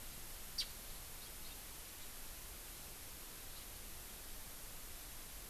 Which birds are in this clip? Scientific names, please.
Horornis diphone